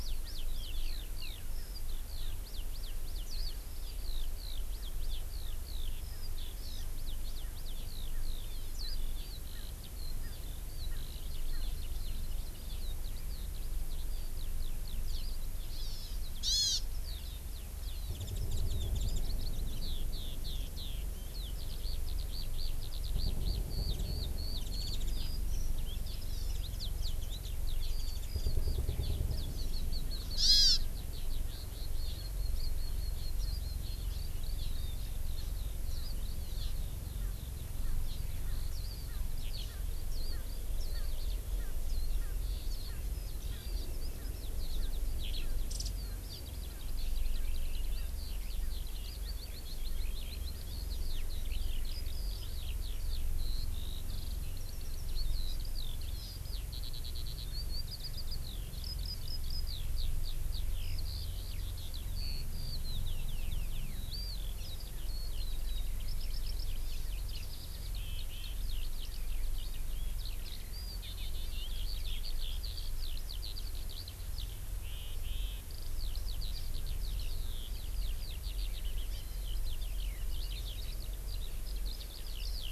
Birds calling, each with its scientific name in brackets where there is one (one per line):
Warbling White-eye (Zosterops japonicus)
Eurasian Skylark (Alauda arvensis)
Erckel's Francolin (Pternistis erckelii)
Hawaii Amakihi (Chlorodrepanis virens)